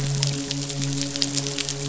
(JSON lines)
{"label": "biophony, midshipman", "recorder": "SoundTrap 500"}